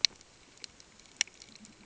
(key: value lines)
label: ambient
recorder: HydroMoth